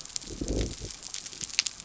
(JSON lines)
{"label": "biophony", "recorder": "SoundTrap 300"}